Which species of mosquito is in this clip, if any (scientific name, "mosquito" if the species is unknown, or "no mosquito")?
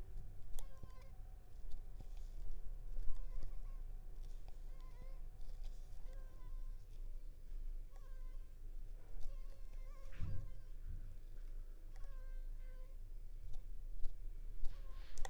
Anopheles arabiensis